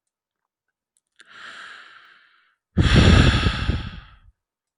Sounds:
Sigh